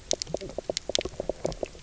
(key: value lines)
label: biophony, knock croak
recorder: SoundTrap 300